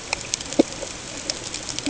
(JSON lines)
{"label": "ambient", "recorder": "HydroMoth"}